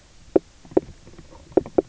{"label": "biophony, knock croak", "recorder": "SoundTrap 300"}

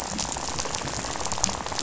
{"label": "biophony, rattle", "recorder": "SoundTrap 500"}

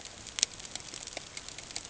{"label": "ambient", "recorder": "HydroMoth"}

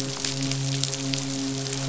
{"label": "biophony, midshipman", "recorder": "SoundTrap 500"}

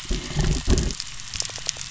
{"label": "anthrophony, boat engine", "recorder": "SoundTrap 300"}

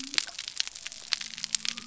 {"label": "biophony", "recorder": "SoundTrap 300"}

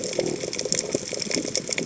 {"label": "biophony", "recorder": "HydroMoth"}
{"label": "biophony, chatter", "recorder": "HydroMoth"}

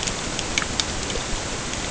{"label": "ambient", "recorder": "HydroMoth"}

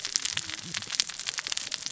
{"label": "biophony, cascading saw", "recorder": "SoundTrap 600 or HydroMoth"}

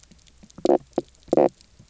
{"label": "biophony, knock croak", "recorder": "SoundTrap 300"}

